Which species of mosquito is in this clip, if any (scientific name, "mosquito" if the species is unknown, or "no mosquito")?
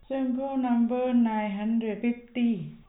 no mosquito